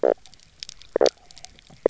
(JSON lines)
{"label": "biophony, knock croak", "recorder": "SoundTrap 300"}